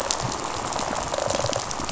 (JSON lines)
{"label": "biophony, rattle response", "recorder": "SoundTrap 500"}